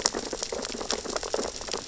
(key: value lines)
label: biophony, sea urchins (Echinidae)
recorder: SoundTrap 600 or HydroMoth